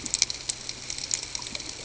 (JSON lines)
{"label": "ambient", "recorder": "HydroMoth"}